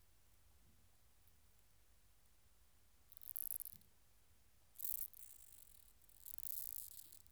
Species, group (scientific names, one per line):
Stenobothrus lineatus
Orthoptera